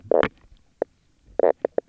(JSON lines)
{"label": "biophony, knock croak", "recorder": "SoundTrap 300"}